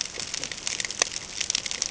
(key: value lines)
label: ambient
recorder: HydroMoth